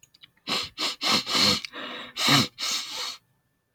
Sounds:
Sniff